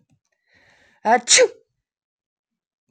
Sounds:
Sneeze